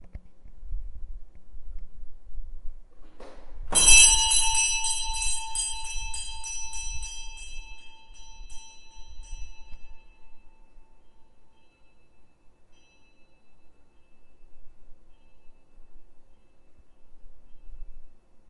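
An old-fashioned wooden or mechanical doorbell sounds short and abrupt. 3.3 - 3.9
An old-fashioned doorbell rings loudly and gradually diminishes. 3.8 - 9.8

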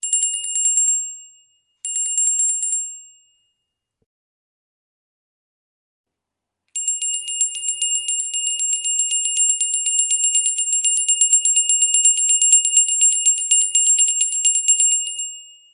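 A bell rings multiple times. 0.0 - 1.2
A bell rings multiple times. 1.8 - 3.0
A bell rings multiple times. 6.7 - 15.5

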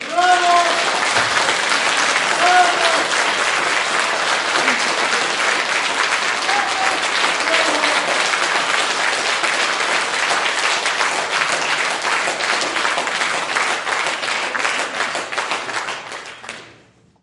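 A large crowd is applauding. 0.0 - 16.7

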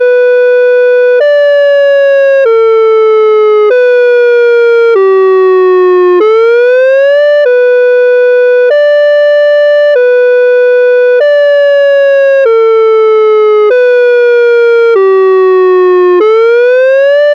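A loud synthesized siren changes pitch suddenly and repeatedly every few seconds. 0.0 - 17.3

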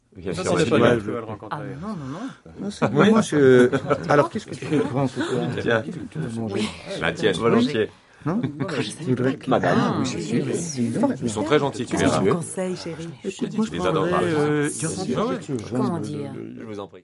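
People chatting and chattering. 0.0 - 17.0

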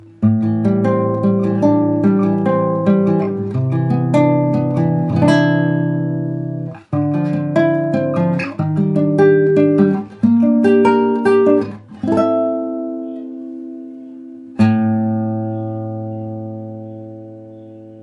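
Chords played on an acoustic guitar. 0.0 - 14.6
Chords of an acoustic guitar fade out. 14.5 - 18.0

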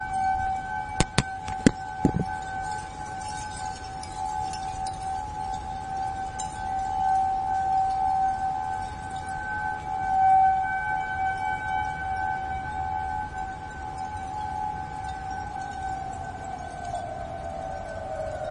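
A whining sound at a constant frequency gradually increases in volume. 0.0 - 18.5
Glass wind chimes chiming continuously while gradually decreasing in volume. 0.0 - 18.5
A short, loud tapping sound. 1.0 - 2.3
A distant siren gradually increases in pitch. 15.3 - 18.5

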